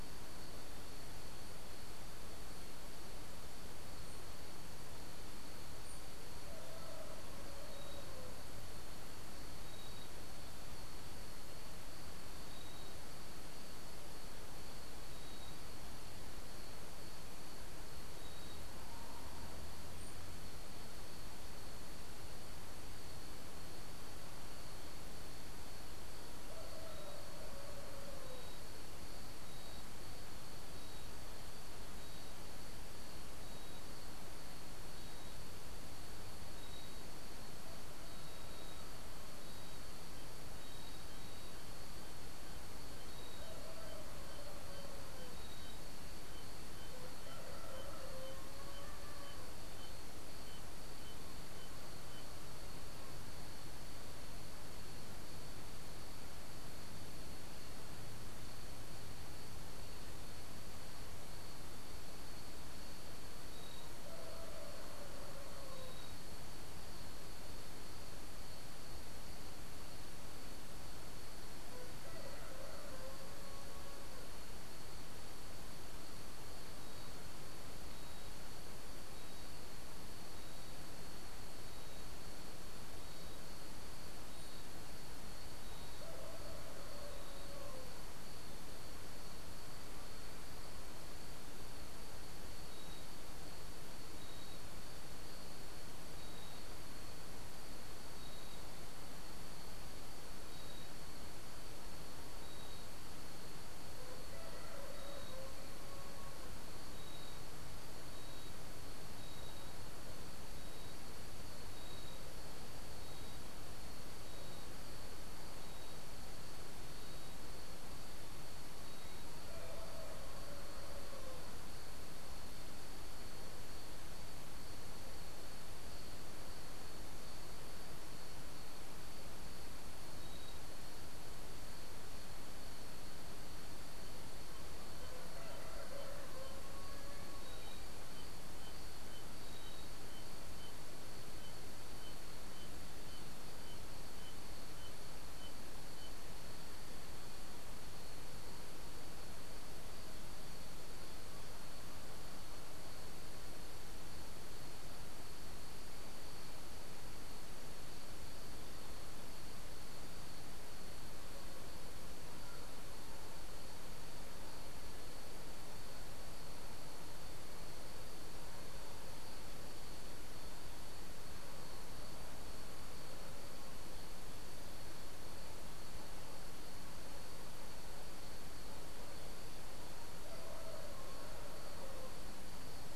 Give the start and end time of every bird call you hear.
[5.84, 6.04] unidentified bird
[19.94, 20.24] unidentified bird

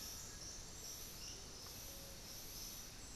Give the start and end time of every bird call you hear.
[0.00, 3.15] Piratic Flycatcher (Legatus leucophaius)
[0.00, 3.15] Undulated Tinamou (Crypturellus undulatus)

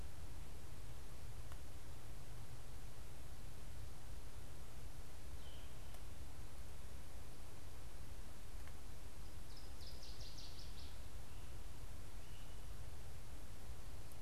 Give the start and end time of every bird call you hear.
[9.28, 10.98] Northern Waterthrush (Parkesia noveboracensis)

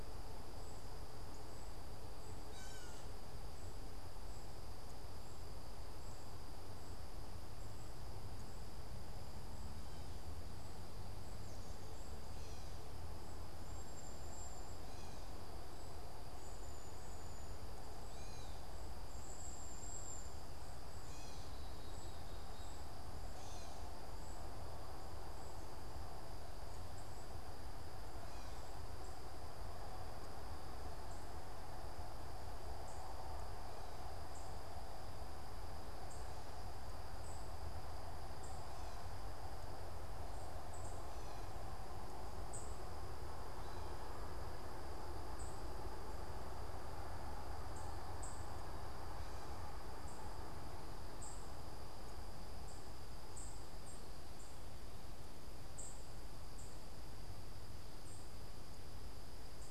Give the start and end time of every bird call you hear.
[0.00, 5.92] unidentified bird
[2.32, 3.12] Gray Catbird (Dumetella carolinensis)
[13.62, 20.42] Cedar Waxwing (Bombycilla cedrorum)
[18.02, 23.72] Gray Catbird (Dumetella carolinensis)
[20.52, 24.52] unidentified bird
[32.62, 59.62] unidentified bird

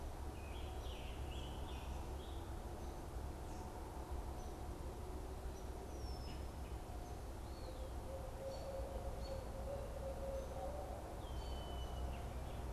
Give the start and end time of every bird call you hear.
[0.24, 2.44] Scarlet Tanager (Piranga olivacea)
[4.24, 5.64] Hairy Woodpecker (Dryobates villosus)
[5.74, 6.44] Red-winged Blackbird (Agelaius phoeniceus)
[7.54, 11.34] Barred Owl (Strix varia)
[8.34, 9.54] American Robin (Turdus migratorius)
[11.14, 12.24] Red-winged Blackbird (Agelaius phoeniceus)

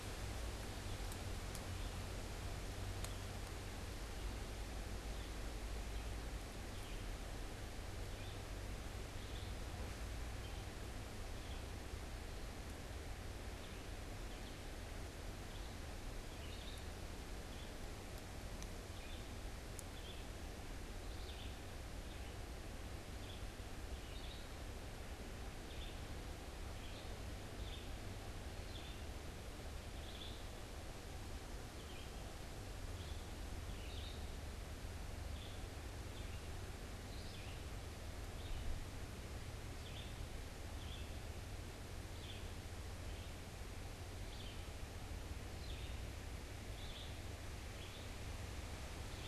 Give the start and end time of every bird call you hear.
[4.90, 11.90] Red-eyed Vireo (Vireo olivaceus)
[13.30, 49.27] Red-eyed Vireo (Vireo olivaceus)

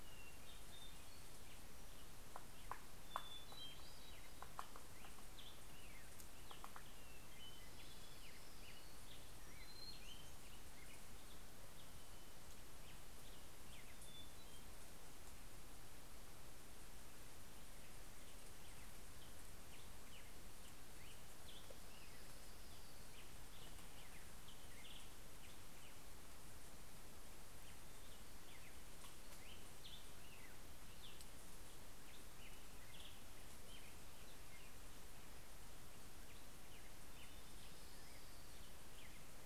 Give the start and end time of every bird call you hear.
[0.00, 2.00] Hermit Thrush (Catharus guttatus)
[2.60, 4.80] Hermit Thrush (Catharus guttatus)
[3.10, 14.30] Black-headed Grosbeak (Pheucticus melanocephalus)
[7.30, 9.60] Orange-crowned Warbler (Leiothlypis celata)
[13.50, 15.20] Hermit Thrush (Catharus guttatus)
[18.00, 26.20] Black-headed Grosbeak (Pheucticus melanocephalus)
[21.50, 23.50] Orange-crowned Warbler (Leiothlypis celata)
[27.40, 39.40] Black-headed Grosbeak (Pheucticus melanocephalus)
[37.00, 39.30] Orange-crowned Warbler (Leiothlypis celata)

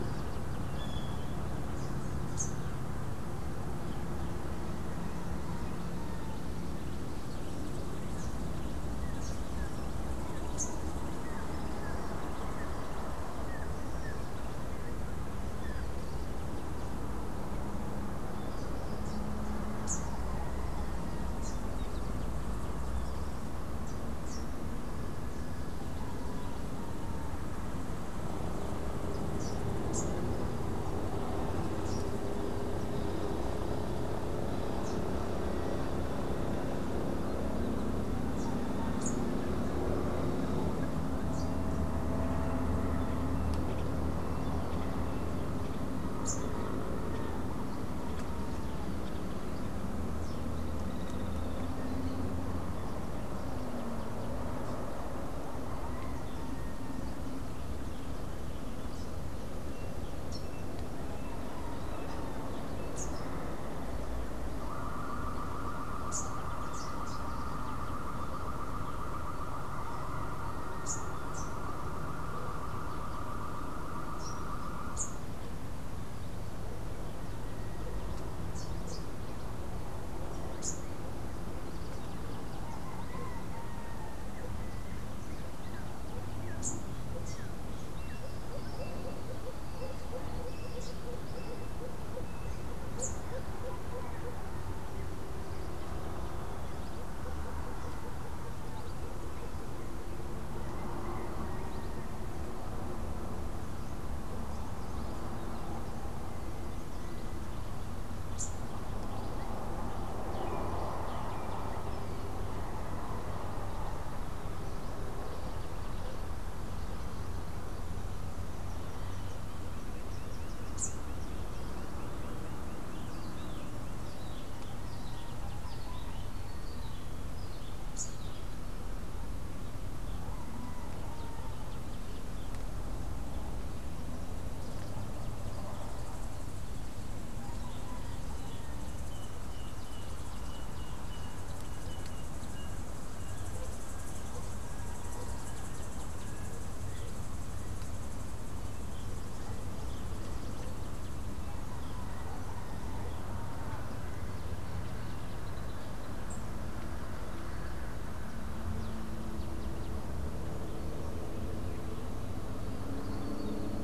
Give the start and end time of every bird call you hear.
[0.58, 1.38] Great Kiskadee (Pitangus sulphuratus)
[2.18, 2.78] Rufous-capped Warbler (Basileuterus rufifrons)
[7.98, 10.98] Rufous-capped Warbler (Basileuterus rufifrons)
[8.98, 16.18] Rufous-naped Wren (Campylorhynchus rufinucha)
[19.68, 24.68] Rufous-capped Warbler (Basileuterus rufifrons)
[29.28, 41.58] Rufous-capped Warbler (Basileuterus rufifrons)
[46.08, 46.78] Rufous-capped Warbler (Basileuterus rufifrons)
[62.78, 72.08] Rufous-capped Warbler (Basileuterus rufifrons)
[74.78, 93.38] Rufous-capped Warbler (Basileuterus rufifrons)
[108.18, 108.58] Rufous-capped Warbler (Basileuterus rufifrons)
[120.48, 121.18] Rufous-capped Warbler (Basileuterus rufifrons)
[127.68, 128.28] Rufous-capped Warbler (Basileuterus rufifrons)

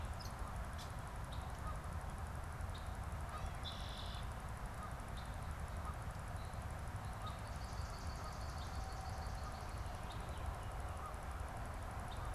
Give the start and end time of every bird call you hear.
[0.00, 1.10] Gray Catbird (Dumetella carolinensis)
[3.10, 4.20] Red-winged Blackbird (Agelaius phoeniceus)
[7.20, 10.10] Swamp Sparrow (Melospiza georgiana)

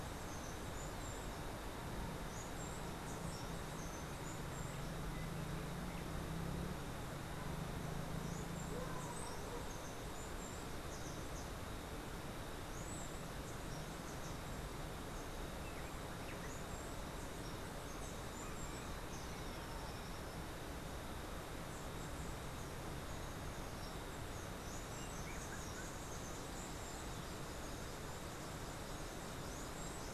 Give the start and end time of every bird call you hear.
[0.00, 19.06] Steely-vented Hummingbird (Saucerottia saucerottei)
[24.26, 30.14] Black-capped Tanager (Stilpnia heinei)
[24.86, 26.26] Whiskered Wren (Pheugopedius mystacalis)

